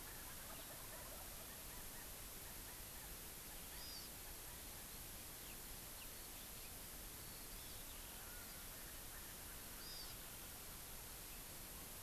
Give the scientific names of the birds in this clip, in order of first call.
Meleagris gallopavo, Callipepla californica, Chlorodrepanis virens